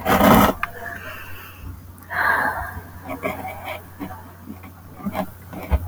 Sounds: Sigh